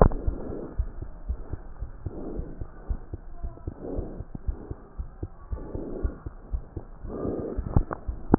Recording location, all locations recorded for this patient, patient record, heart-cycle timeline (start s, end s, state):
aortic valve (AV)
aortic valve (AV)+pulmonary valve (PV)+tricuspid valve (TV)+mitral valve (MV)
#Age: Child
#Sex: Male
#Height: 128.0 cm
#Weight: 37.1 kg
#Pregnancy status: False
#Murmur: Absent
#Murmur locations: nan
#Most audible location: nan
#Systolic murmur timing: nan
#Systolic murmur shape: nan
#Systolic murmur grading: nan
#Systolic murmur pitch: nan
#Systolic murmur quality: nan
#Diastolic murmur timing: nan
#Diastolic murmur shape: nan
#Diastolic murmur grading: nan
#Diastolic murmur pitch: nan
#Diastolic murmur quality: nan
#Outcome: Abnormal
#Campaign: 2015 screening campaign
0.00	0.53	unannotated
0.53	0.77	diastole
0.77	0.86	S1
0.86	0.96	systole
0.96	1.06	S2
1.06	1.27	diastole
1.27	1.37	S1
1.37	1.52	systole
1.52	1.60	S2
1.60	1.80	diastole
1.80	1.90	S1
1.90	2.02	systole
2.02	2.14	S2
2.14	2.34	diastole
2.34	2.46	S1
2.46	2.60	systole
2.60	2.68	S2
2.68	2.86	diastole
2.86	3.00	S1
3.00	3.12	systole
3.12	3.20	S2
3.20	3.42	diastole
3.42	3.52	S1
3.52	3.65	systole
3.65	3.72	S2
3.72	3.96	diastole
3.96	4.04	S1
4.04	4.18	systole
4.18	4.26	S2
4.26	4.44	diastole
4.44	4.58	S1
4.58	4.70	systole
4.70	4.78	S2
4.78	4.98	diastole
4.98	5.10	S1
5.10	5.20	systole
5.20	5.30	S2
5.30	5.50	diastole
5.50	5.62	S1
5.62	5.74	systole
5.74	5.84	S2
5.84	6.02	diastole
6.02	6.16	S1
6.16	6.24	systole
6.24	6.34	S2
6.34	6.52	diastole
6.52	6.62	S1
6.62	6.76	systole
6.76	6.84	S2
6.84	7.04	diastole
7.04	7.12	S1
7.12	7.20	systole
7.20	7.34	S2
7.34	7.56	diastole
7.56	8.38	unannotated